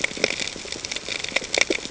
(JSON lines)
{"label": "ambient", "recorder": "HydroMoth"}